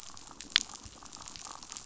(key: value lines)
label: biophony
recorder: SoundTrap 500